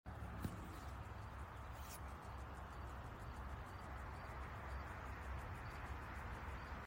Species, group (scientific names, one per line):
Trimerotropis verruculata
Orthoptera